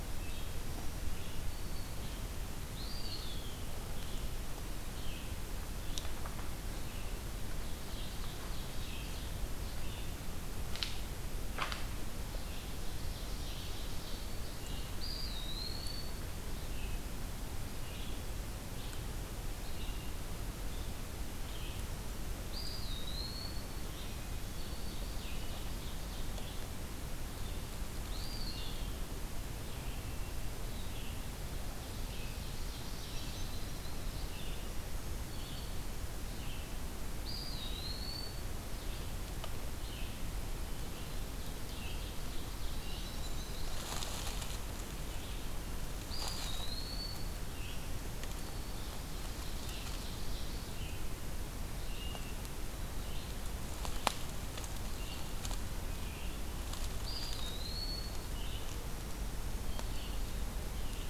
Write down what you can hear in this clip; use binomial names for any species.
Vireo olivaceus, Setophaga virens, Contopus virens, Seiurus aurocapilla, Catharus guttatus, Certhia americana